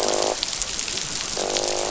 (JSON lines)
{"label": "biophony, croak", "recorder": "SoundTrap 500"}